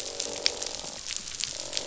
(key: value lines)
label: biophony, croak
recorder: SoundTrap 500